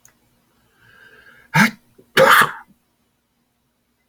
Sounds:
Sneeze